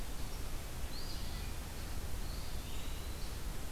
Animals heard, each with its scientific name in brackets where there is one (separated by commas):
Eastern Wood-Pewee (Contopus virens), Eastern Phoebe (Sayornis phoebe)